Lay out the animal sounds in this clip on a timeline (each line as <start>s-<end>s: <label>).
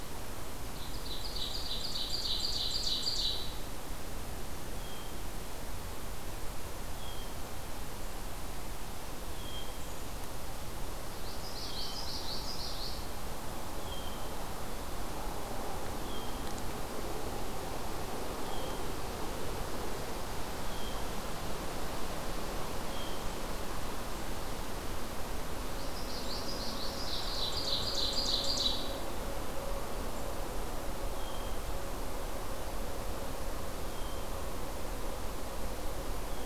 0.0s-23.3s: Hermit Thrush (Catharus guttatus)
0.7s-3.5s: Ovenbird (Seiurus aurocapilla)
11.2s-13.2s: Common Yellowthroat (Geothlypis trichas)
25.8s-27.4s: Common Yellowthroat (Geothlypis trichas)
27.0s-29.0s: Ovenbird (Seiurus aurocapilla)
31.0s-36.5s: Hermit Thrush (Catharus guttatus)